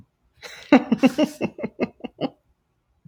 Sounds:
Laughter